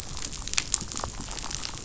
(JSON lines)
{"label": "biophony, damselfish", "recorder": "SoundTrap 500"}